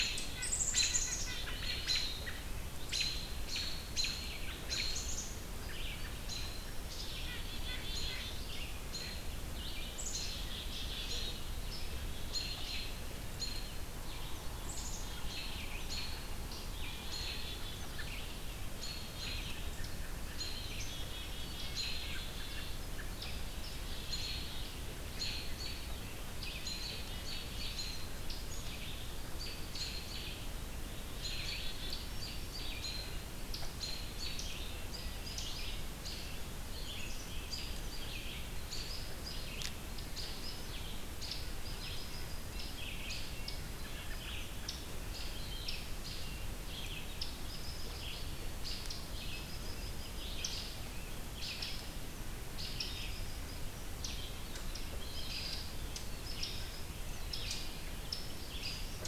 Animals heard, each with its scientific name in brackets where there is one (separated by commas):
American Robin (Turdus migratorius), Black-capped Chickadee (Poecile atricapillus), Red-eyed Vireo (Vireo olivaceus)